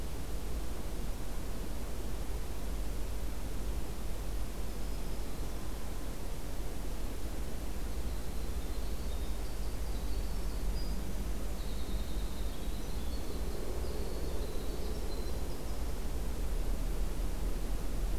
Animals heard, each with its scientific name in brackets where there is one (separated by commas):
Black-throated Green Warbler (Setophaga virens), Winter Wren (Troglodytes hiemalis)